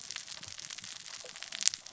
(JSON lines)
{"label": "biophony, cascading saw", "recorder": "SoundTrap 600 or HydroMoth"}